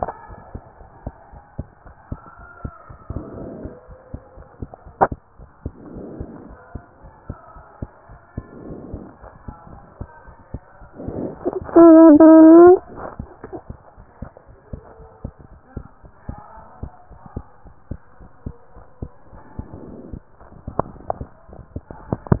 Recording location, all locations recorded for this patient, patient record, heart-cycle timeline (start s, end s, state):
pulmonary valve (PV)
aortic valve (AV)+pulmonary valve (PV)+tricuspid valve (TV)+mitral valve (MV)
#Age: Child
#Sex: Male
#Height: 108.0 cm
#Weight: 24.7 kg
#Pregnancy status: False
#Murmur: Absent
#Murmur locations: nan
#Most audible location: nan
#Systolic murmur timing: nan
#Systolic murmur shape: nan
#Systolic murmur grading: nan
#Systolic murmur pitch: nan
#Systolic murmur quality: nan
#Diastolic murmur timing: nan
#Diastolic murmur shape: nan
#Diastolic murmur grading: nan
#Diastolic murmur pitch: nan
#Diastolic murmur quality: nan
#Outcome: Normal
#Campaign: 2015 screening campaign
0.00	12.96	unannotated
12.96	13.08	S1
13.08	13.16	systole
13.16	13.30	S2
13.30	13.48	diastole
13.48	13.62	S1
13.62	13.68	systole
13.68	13.80	S2
13.80	13.98	diastole
13.98	14.08	S1
14.08	14.20	systole
14.20	14.30	S2
14.30	14.48	diastole
14.48	14.56	S1
14.56	14.68	systole
14.68	14.82	S2
14.82	14.97	diastole
14.97	15.08	S1
15.08	15.18	systole
15.18	15.30	S2
15.30	15.50	diastole
15.50	15.58	S1
15.58	15.70	systole
15.70	15.82	S2
15.82	16.02	diastole
16.02	16.10	S1
16.10	16.24	systole
16.24	16.38	S2
16.38	16.55	diastole
16.55	16.66	S1
16.66	16.78	systole
16.78	16.92	S2
16.92	17.10	diastole
17.10	17.20	S1
17.20	17.32	systole
17.32	17.46	S2
17.46	17.63	diastole
17.63	17.74	S1
17.74	17.86	systole
17.86	18.00	S2
18.00	18.20	diastole
18.20	18.30	S1
18.30	18.42	systole
18.42	18.56	S2
18.56	18.76	diastole
18.76	18.84	S1
18.84	18.98	systole
18.98	19.12	S2
19.12	19.31	diastole
19.31	19.42	S1
19.42	19.54	systole
19.54	19.68	S2
19.68	19.88	diastole
19.88	20.00	S1
20.00	20.10	systole
20.10	20.22	S2
20.22	20.39	diastole
20.39	22.40	unannotated